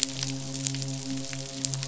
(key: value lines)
label: biophony, midshipman
recorder: SoundTrap 500